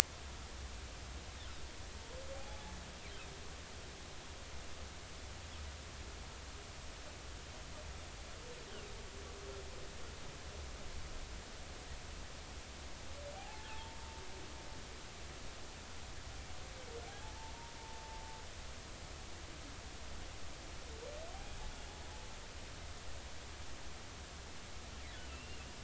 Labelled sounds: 2.3	2.6	humpback whale, 0.80 to 0.90 kHz
13.3	14.0	humpback whale, 0.80 to 1.8 kHz
17.1	17.3	humpback whale, 0.80 to 0.93 kHz
17.8	18.2	humpback whale, 0.83 to 0.99 kHz
25.3	25.6	humpback whale, 2.6 to 2.9 kHz

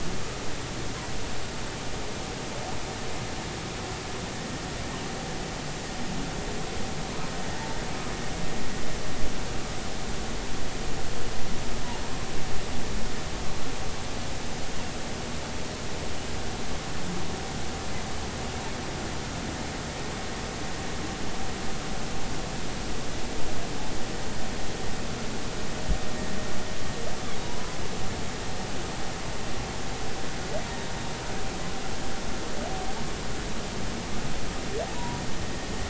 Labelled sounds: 27.4	27.8	humpback whale, 0.90 to 1.1 kHz
34.9	35.2	humpback whale, 0.90 to 1.0 kHz

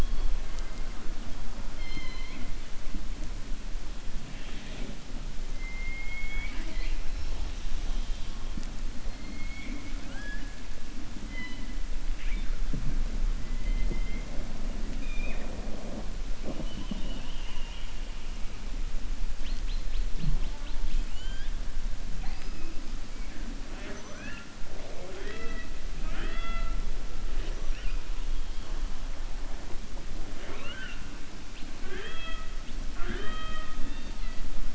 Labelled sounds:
1.7	2.5	killer whale, 0.20 to 5.3 kHz
16.5	17.9	killer whale, 2.0 to 3.7 kHz

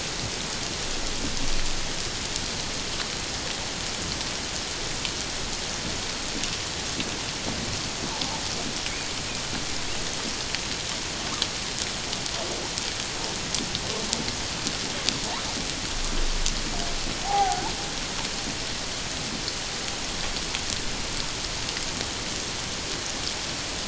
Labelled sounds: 17.2	17.7	humpback whale, 0.78 to 1.6 kHz

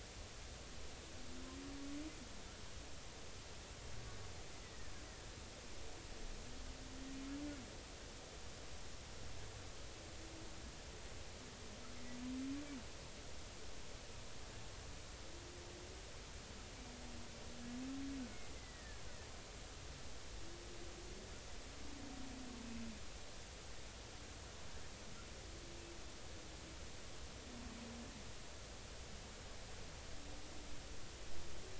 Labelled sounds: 4.6	4.9	killer whale, Bigg's (transient), 1.7 to 2.1 kHz
18.6	19.0	killer whale, Bigg's (transient), 1.6 to 2.1 kHz

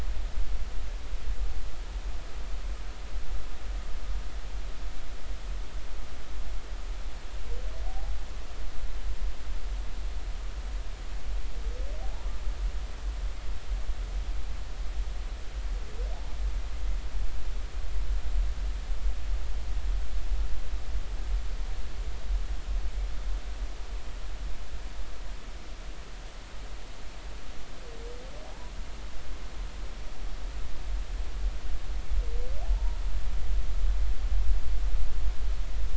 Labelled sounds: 7.9	8.1	humpback whale, 0.80 to 0.86 kHz
12.0	12.3	humpback whale, 0.80 to 1.0 kHz
28.5	28.7	humpback whale, 0.80 to 1.1 kHz
32.7	33.0	humpback whale, 0.83 to 0.99 kHz

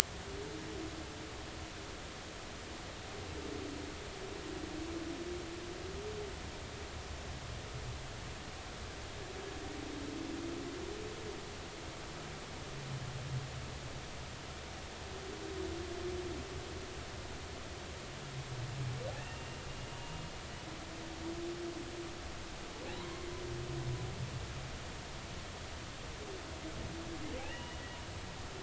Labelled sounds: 19.2	20.2	humpback whale, 2.6 to 2.9 kHz
23.0	23.2	humpback whale, 0.93 to 1.1 kHz
27.4	27.8	humpback whale, 2.5 to 3.0 kHz

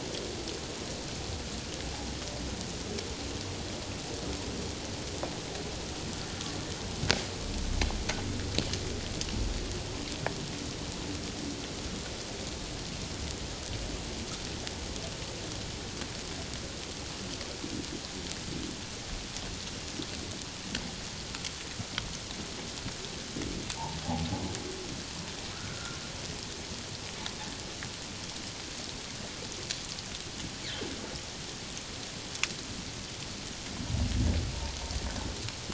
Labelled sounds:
25.5	26.0	humpback whale, 1.2 to 1.6 kHz

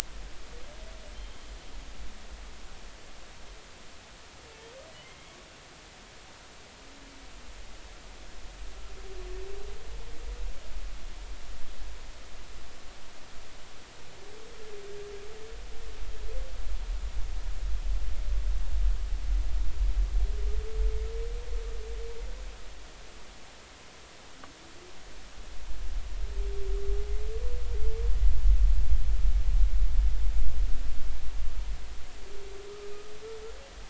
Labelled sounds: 1.1	1.5	humpback whale, 3.1 to 3.3 kHz
4.9	5.2	humpback whale, 1.9 to 2.2 kHz

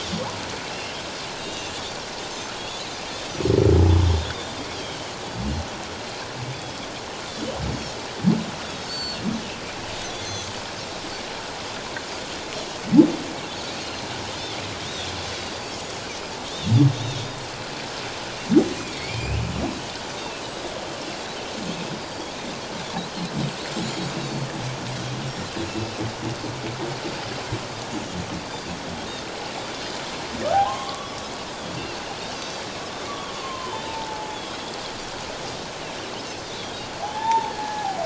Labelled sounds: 0.7	1.7	Pacific white-sided dolphin, 2.6 to 3.8 kHz
4.7	5.0	Pacific white-sided dolphin, 2.9 to 3.4 kHz
6.5	6.9	Pacific white-sided dolphin, 3.2 to 3.5 kHz
7.7	9.2	Pacific white-sided dolphin, 3.2 to 7.6 kHz
10.1	10.5	Pacific white-sided dolphin, 3.3 to 6.3 kHz
13.7	15.1	Pacific white-sided dolphin, 3.3 to 6.8 kHz
16.9	17.3	Pacific white-sided dolphin, 3.2 to 3.9 kHz
18.8	19.5	humpback whale, 2.0 to 3.0 kHz
20.2	20.4	Pacific white-sided dolphin, 2.5 to 2.8 kHz
22.0	22.3	Pacific white-sided dolphin, 4.5 to 4.9 kHz
24.2	24.5	Pacific white-sided dolphin, 4.3 to 4.6 kHz
25.6	26.0	Pacific white-sided dolphin, 2.6 to 2.8 kHz
28.4	28.7	Pacific white-sided dolphin, 4.6 to 4.8 kHz
30.5	31.2	humpback whale, 0.78 to 3.5 kHz
32.3	32.6	Pacific white-sided dolphin, 4.6 to 4.9 kHz
33.1	34.4	humpback whale, 0.81 to 3.2 kHz
34.3	34.7	Pacific white-sided dolphin, 3.2 to 3.5 kHz
37.0	37.5	Pacific white-sided dolphin, 0.78 to 0.97 kHz
37.1	38.0	humpback whale, 0.78 to 3.7 kHz

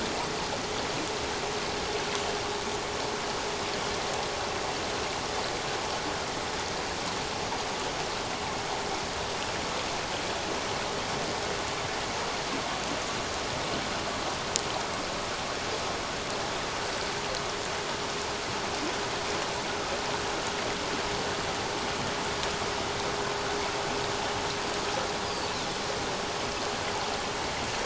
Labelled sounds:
25.2	25.5	Pacific white-sided dolphin, 4.4 to 5.0 kHz

